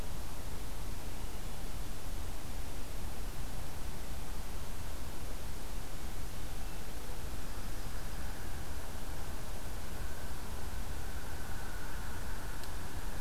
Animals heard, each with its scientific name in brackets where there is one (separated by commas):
Hermit Thrush (Catharus guttatus), Yellow-rumped Warbler (Setophaga coronata)